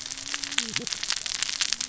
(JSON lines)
{"label": "biophony, cascading saw", "recorder": "SoundTrap 600 or HydroMoth"}